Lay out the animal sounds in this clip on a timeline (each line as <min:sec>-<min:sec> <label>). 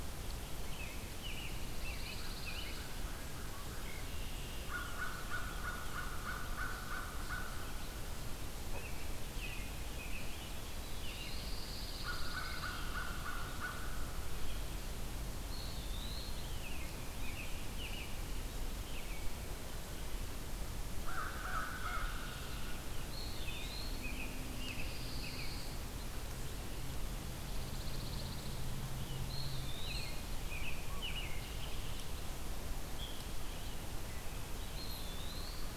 0:00.4-0:02.8 American Robin (Turdus migratorius)
0:01.4-0:03.0 Pine Warbler (Setophaga pinus)
0:03.7-0:04.9 Red-winged Blackbird (Agelaius phoeniceus)
0:04.6-0:08.0 American Crow (Corvus brachyrhynchos)
0:08.5-0:10.5 American Robin (Turdus migratorius)
0:10.4-0:11.6 Eastern Wood-Pewee (Contopus virens)
0:10.8-0:12.2 American Robin (Turdus migratorius)
0:11.1-0:13.2 Pine Warbler (Setophaga pinus)
0:11.8-0:14.6 American Crow (Corvus brachyrhynchos)
0:15.3-0:16.5 Eastern Wood-Pewee (Contopus virens)
0:16.5-0:19.4 American Robin (Turdus migratorius)
0:20.9-0:22.9 American Crow (Corvus brachyrhynchos)
0:23.0-0:24.1 Eastern Wood-Pewee (Contopus virens)
0:23.2-0:25.6 American Robin (Turdus migratorius)
0:24.6-0:25.8 Pine Warbler (Setophaga pinus)
0:27.4-0:28.6 Pine Warbler (Setophaga pinus)
0:29.2-0:30.2 Eastern Wood-Pewee (Contopus virens)
0:29.7-0:31.5 American Robin (Turdus migratorius)
0:34.6-0:35.8 Eastern Wood-Pewee (Contopus virens)